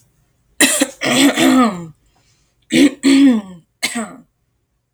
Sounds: Throat clearing